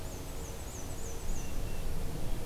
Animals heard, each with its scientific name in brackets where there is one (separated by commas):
Black-and-white Warbler (Mniotilta varia)